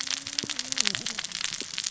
{"label": "biophony, cascading saw", "recorder": "SoundTrap 600 or HydroMoth"}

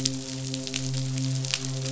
{"label": "biophony, midshipman", "recorder": "SoundTrap 500"}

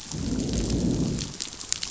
{"label": "biophony, growl", "recorder": "SoundTrap 500"}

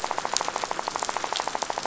{"label": "biophony, rattle", "recorder": "SoundTrap 500"}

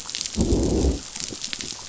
{"label": "biophony, growl", "recorder": "SoundTrap 500"}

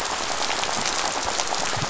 {"label": "biophony, rattle", "recorder": "SoundTrap 500"}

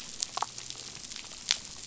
{"label": "biophony, damselfish", "recorder": "SoundTrap 500"}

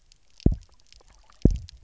{"label": "biophony, double pulse", "recorder": "SoundTrap 300"}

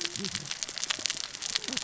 {"label": "biophony, cascading saw", "recorder": "SoundTrap 600 or HydroMoth"}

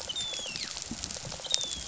{"label": "biophony, rattle response", "recorder": "SoundTrap 500"}
{"label": "biophony, dolphin", "recorder": "SoundTrap 500"}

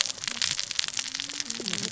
{"label": "biophony, cascading saw", "recorder": "SoundTrap 600 or HydroMoth"}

